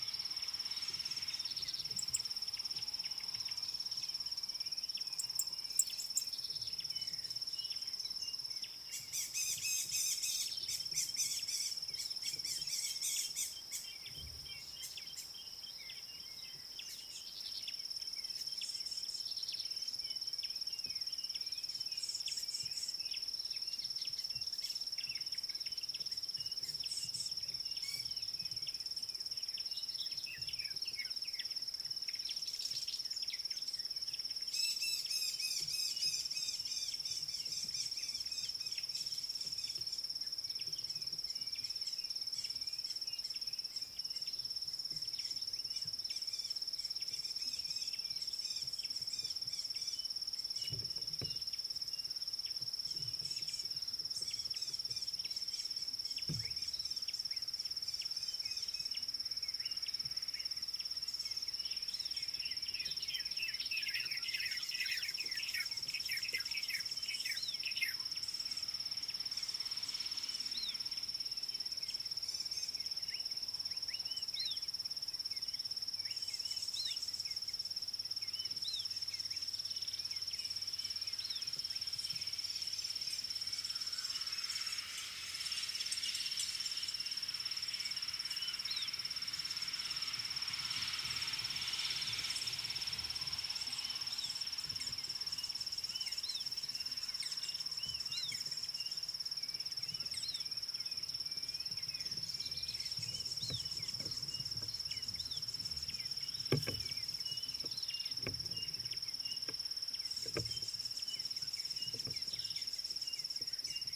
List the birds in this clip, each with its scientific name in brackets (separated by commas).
Red-backed Scrub-Robin (Cercotrichas leucophrys), Rattling Cisticola (Cisticola chiniana), White-rumped Shrike (Eurocephalus ruppelli), White Helmetshrike (Prionops plumatus), Purple Grenadier (Granatina ianthinogaster)